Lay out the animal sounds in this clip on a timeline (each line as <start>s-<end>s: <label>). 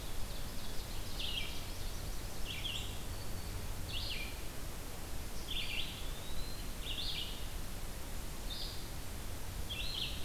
0.0s-1.2s: Ovenbird (Seiurus aurocapilla)
0.0s-10.2s: Red-eyed Vireo (Vireo olivaceus)
1.3s-2.9s: Yellow-rumped Warbler (Setophaga coronata)
3.0s-3.6s: Black-throated Green Warbler (Setophaga virens)
5.3s-6.8s: Eastern Wood-Pewee (Contopus virens)